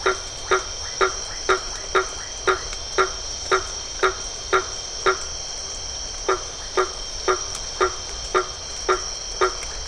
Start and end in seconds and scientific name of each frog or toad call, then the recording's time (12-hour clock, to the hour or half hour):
0.0	3.3	Leptodactylus notoaktites
0.0	9.8	Boana faber
9.0	9.8	Leptodactylus notoaktites
~9pm